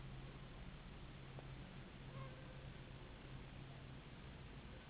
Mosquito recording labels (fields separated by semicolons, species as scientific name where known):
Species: Anopheles gambiae s.s.; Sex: female; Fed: unfed; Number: one; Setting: insect culture